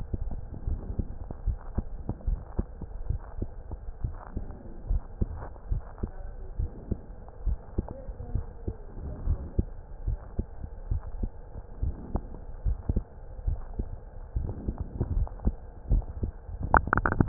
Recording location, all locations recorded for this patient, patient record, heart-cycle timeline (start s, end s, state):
mitral valve (MV)
aortic valve (AV)+pulmonary valve (PV)+tricuspid valve (TV)+mitral valve (MV)
#Age: Child
#Sex: Male
#Height: 133.0 cm
#Weight: 26.3 kg
#Pregnancy status: False
#Murmur: Absent
#Murmur locations: nan
#Most audible location: nan
#Systolic murmur timing: nan
#Systolic murmur shape: nan
#Systolic murmur grading: nan
#Systolic murmur pitch: nan
#Systolic murmur quality: nan
#Diastolic murmur timing: nan
#Diastolic murmur shape: nan
#Diastolic murmur grading: nan
#Diastolic murmur pitch: nan
#Diastolic murmur quality: nan
#Outcome: Abnormal
#Campaign: 2015 screening campaign
0.00	0.34	unannotated
0.34	0.66	diastole
0.66	0.80	S1
0.80	0.96	systole
0.96	1.06	S2
1.06	1.44	diastole
1.44	1.58	S1
1.58	1.74	systole
1.74	1.86	S2
1.86	2.24	diastole
2.24	2.40	S1
2.40	2.54	systole
2.54	2.66	S2
2.66	3.04	diastole
3.04	3.22	S1
3.22	3.40	systole
3.40	3.52	S2
3.52	4.02	diastole
4.02	4.16	S1
4.16	4.36	systole
4.36	4.48	S2
4.48	4.88	diastole
4.88	5.02	S1
5.02	5.18	systole
5.18	5.32	S2
5.32	5.68	diastole
5.68	5.84	S1
5.84	6.00	systole
6.00	6.10	S2
6.10	6.56	diastole
6.56	6.70	S1
6.70	6.88	systole
6.88	6.98	S2
6.98	7.44	diastole
7.44	7.58	S1
7.58	7.74	systole
7.74	7.88	S2
7.88	8.32	diastole
8.32	8.46	S1
8.46	8.64	systole
8.64	8.74	S2
8.74	9.24	diastole
9.24	9.40	S1
9.40	9.56	systole
9.56	9.70	S2
9.70	10.06	diastole
10.06	10.20	S1
10.20	10.34	systole
10.34	10.46	S2
10.46	10.88	diastole
10.88	11.02	S1
11.02	11.18	systole
11.18	11.30	S2
11.30	11.80	diastole
11.80	11.96	S1
11.96	12.14	systole
12.14	12.26	S2
12.26	12.64	diastole
12.64	12.78	S1
12.78	12.90	systole
12.90	13.04	S2
13.04	13.46	diastole
13.46	13.60	S1
13.60	13.76	systole
13.76	13.88	S2
13.88	14.34	diastole
14.34	14.52	S1
14.52	14.66	systole
14.66	14.76	S2
14.76	15.10	diastole
15.10	15.28	S1
15.28	15.44	systole
15.44	15.56	S2
15.56	15.90	diastole
15.90	16.06	S1
16.06	16.18	systole
16.18	16.34	S2
16.34	16.72	diastole
16.72	17.28	unannotated